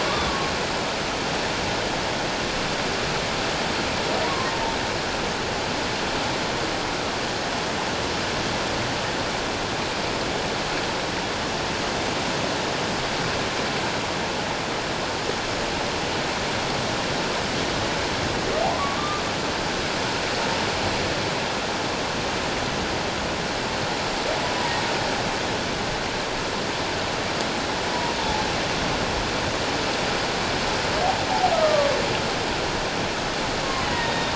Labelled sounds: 0.3	0.5	humpback whale, 1.1 to 1.2 kHz
4.3	4.5	humpback whale, 0.97 to 1.2 kHz
18.6	19.2	humpback whale, 0.78 to 1.3 kHz
28.2	28.5	humpback whale, 0.78 to 0.94 kHz
31.5	31.9	humpback whale, 1.1 to 1.3 kHz
33.6	34.3	humpback whale, 0.88 to 3.8 kHz

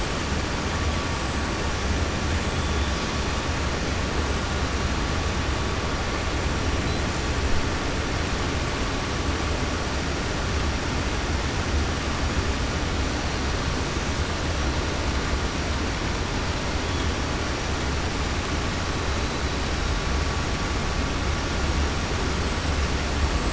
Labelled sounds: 2.4	2.8	killer whale, 7.0 to 8.0 kHz

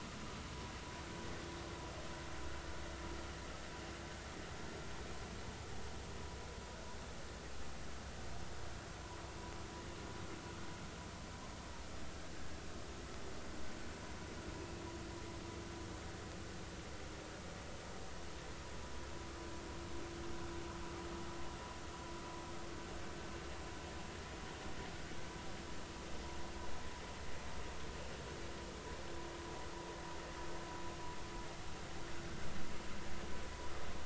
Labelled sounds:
12.3	12.6	vessel noise, 1.6 to 1.7 kHz

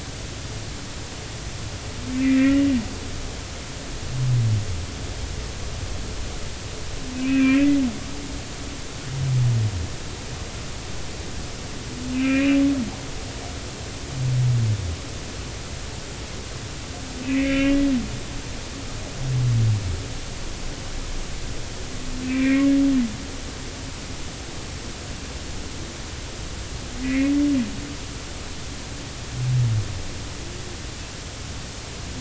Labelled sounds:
2.1	2.6	humpback whale, 1.8 to 2.5 kHz
7.1	7.8	humpback whale, 1.5 to 2.8 kHz
12.1	12.6	humpback whale, 2.2 to 2.9 kHz
17.2	17.8	humpback whale, 1.6 to 3.2 kHz
22.2	22.7	humpback whale, 1.8 to 2.7 kHz
27.0	27.4	humpback whale, 1.8 to 2.6 kHz

